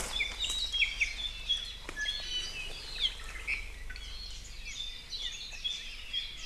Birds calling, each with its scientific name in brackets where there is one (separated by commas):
Iiwi (Drepanis coccinea), Apapane (Himatione sanguinea)